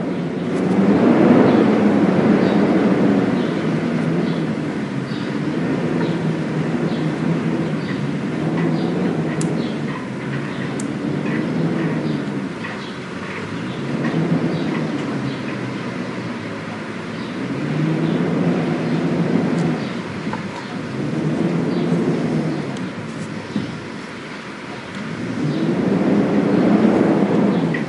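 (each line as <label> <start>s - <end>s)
A House Sparrow chirps quietly while the wind blows. 0.0s - 27.9s
Wind howling. 0.0s - 27.9s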